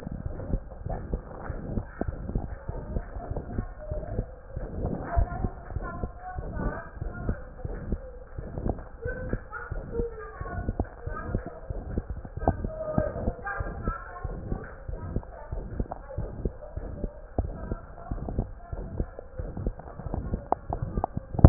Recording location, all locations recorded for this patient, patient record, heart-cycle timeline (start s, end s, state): mitral valve (MV)
aortic valve (AV)+pulmonary valve (PV)+tricuspid valve (TV)+mitral valve (MV)
#Age: Child
#Sex: Male
#Height: 111.0 cm
#Weight: 19.4 kg
#Pregnancy status: False
#Murmur: Present
#Murmur locations: aortic valve (AV)+mitral valve (MV)+pulmonary valve (PV)+tricuspid valve (TV)
#Most audible location: aortic valve (AV)
#Systolic murmur timing: Holosystolic
#Systolic murmur shape: Plateau
#Systolic murmur grading: III/VI or higher
#Systolic murmur pitch: High
#Systolic murmur quality: Harsh
#Diastolic murmur timing: nan
#Diastolic murmur shape: nan
#Diastolic murmur grading: nan
#Diastolic murmur pitch: nan
#Diastolic murmur quality: nan
#Outcome: Abnormal
#Campaign: 2015 screening campaign
0.00	9.02	unannotated
9.02	9.14	S1
9.14	9.26	systole
9.26	9.40	S2
9.40	9.70	diastole
9.70	9.82	S1
9.82	9.96	systole
9.96	10.10	S2
10.10	10.38	diastole
10.38	10.49	S1
10.49	10.66	systole
10.66	10.76	S2
10.76	11.03	diastole
11.03	11.20	S1
11.20	11.30	systole
11.30	11.42	S2
11.42	11.67	diastole
11.67	11.82	S1
11.82	11.93	systole
11.93	12.04	S2
12.04	12.34	diastole
12.34	12.49	S1
12.49	12.62	systole
12.62	12.72	S2
12.72	12.95	diastole
12.95	13.12	S1
13.12	13.23	systole
13.23	13.34	S2
13.34	13.58	diastole
13.58	13.74	S1
13.74	13.84	systole
13.84	13.94	S2
13.94	14.22	diastole
14.22	14.40	S1
14.40	14.48	systole
14.48	14.58	S2
14.58	14.84	diastole
14.84	15.00	S1
15.00	15.10	systole
15.10	15.22	S2
15.22	15.50	diastole
15.50	15.68	S1
15.68	15.74	systole
15.74	15.86	S2
15.86	16.14	diastole
16.14	16.30	S1
16.30	16.40	systole
16.40	16.52	S2
16.52	16.74	diastole
16.74	16.89	S1
16.89	17.00	systole
17.00	17.10	S2
17.10	17.37	diastole
17.37	17.54	S1
17.54	17.64	systole
17.64	17.78	S2
17.78	18.08	diastole
18.08	18.24	S1
18.24	18.32	systole
18.32	18.46	S2
18.46	18.69	diastole
18.69	18.86	S1
18.86	18.96	systole
18.96	19.08	S2
19.08	19.36	diastole
19.36	19.52	S1
19.52	19.60	systole
19.60	19.74	S2
19.74	20.04	diastole
20.04	20.21	S1
20.21	21.49	unannotated